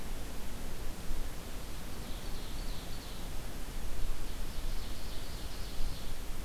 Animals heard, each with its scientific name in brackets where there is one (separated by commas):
Ovenbird (Seiurus aurocapilla)